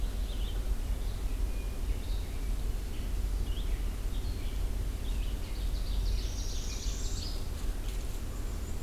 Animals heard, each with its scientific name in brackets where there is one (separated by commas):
Ovenbird (Seiurus aurocapilla), Northern Parula (Setophaga americana), Red-eyed Vireo (Vireo olivaceus), Black-and-white Warbler (Mniotilta varia)